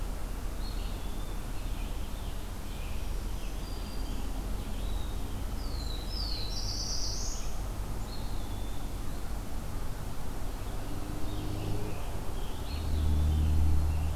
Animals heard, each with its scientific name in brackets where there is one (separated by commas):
Eastern Wood-Pewee (Contopus virens), Red-eyed Vireo (Vireo olivaceus), Scarlet Tanager (Piranga olivacea), Black-throated Green Warbler (Setophaga virens), Black-throated Blue Warbler (Setophaga caerulescens)